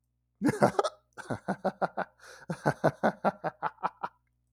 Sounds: Laughter